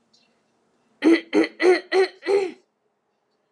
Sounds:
Throat clearing